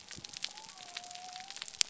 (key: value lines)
label: biophony
recorder: SoundTrap 300